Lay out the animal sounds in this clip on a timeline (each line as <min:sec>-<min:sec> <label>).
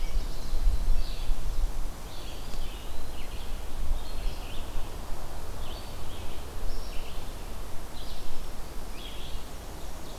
0:00.0-0:10.2 Red-eyed Vireo (Vireo olivaceus)
0:02.0-0:03.3 Eastern Wood-Pewee (Contopus virens)
0:08.8-0:10.2 Black-and-white Warbler (Mniotilta varia)